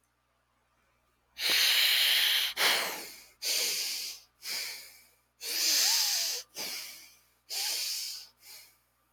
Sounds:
Sigh